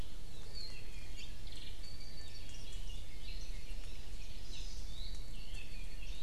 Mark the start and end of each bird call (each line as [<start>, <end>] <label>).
[0.42, 2.72] Apapane (Himatione sanguinea)
[1.12, 1.42] Hawaii Creeper (Loxops mana)
[4.32, 4.92] Hawaii Amakihi (Chlorodrepanis virens)
[4.72, 6.22] Apapane (Himatione sanguinea)
[4.82, 5.22] Iiwi (Drepanis coccinea)